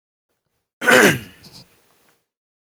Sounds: Throat clearing